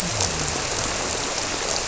{"label": "biophony", "recorder": "SoundTrap 300"}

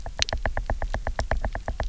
{"label": "biophony, knock", "recorder": "SoundTrap 300"}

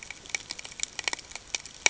{"label": "ambient", "recorder": "HydroMoth"}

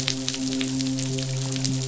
{"label": "biophony, midshipman", "recorder": "SoundTrap 500"}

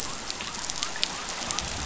{"label": "biophony", "recorder": "SoundTrap 500"}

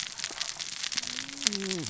{"label": "biophony, cascading saw", "recorder": "SoundTrap 600 or HydroMoth"}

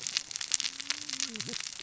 {"label": "biophony, cascading saw", "recorder": "SoundTrap 600 or HydroMoth"}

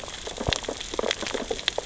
{"label": "biophony, sea urchins (Echinidae)", "recorder": "SoundTrap 600 or HydroMoth"}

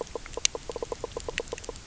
{"label": "biophony, knock croak", "recorder": "SoundTrap 300"}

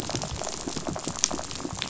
{"label": "biophony, rattle", "recorder": "SoundTrap 500"}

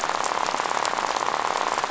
{"label": "biophony, rattle", "recorder": "SoundTrap 500"}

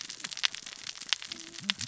{"label": "biophony, cascading saw", "recorder": "SoundTrap 600 or HydroMoth"}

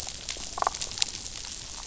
{"label": "biophony, damselfish", "recorder": "SoundTrap 500"}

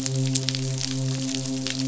{"label": "biophony, midshipman", "recorder": "SoundTrap 500"}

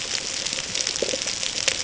{"label": "ambient", "recorder": "HydroMoth"}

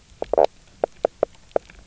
{"label": "biophony, knock croak", "recorder": "SoundTrap 300"}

